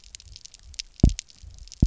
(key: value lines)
label: biophony, double pulse
recorder: SoundTrap 300